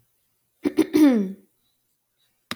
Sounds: Throat clearing